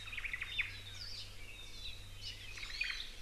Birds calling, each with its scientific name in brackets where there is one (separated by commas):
Hawaii Creeper (Loxops mana), Omao (Myadestes obscurus), Hawaii Amakihi (Chlorodrepanis virens), Warbling White-eye (Zosterops japonicus)